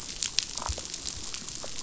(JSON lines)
{"label": "biophony, damselfish", "recorder": "SoundTrap 500"}